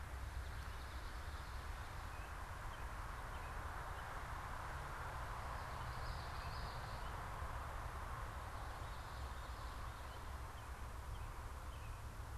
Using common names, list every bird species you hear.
Common Yellowthroat, unidentified bird